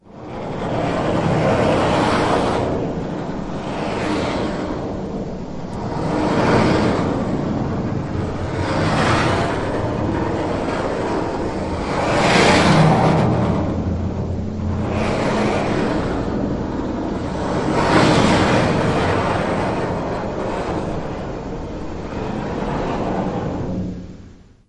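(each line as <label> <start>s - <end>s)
A bass drum is being scraped. 0.0s - 24.7s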